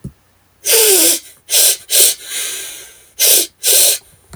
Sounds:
Sniff